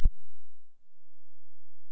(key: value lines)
label: biophony
recorder: SoundTrap 300